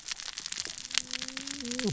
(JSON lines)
{"label": "biophony, cascading saw", "recorder": "SoundTrap 600 or HydroMoth"}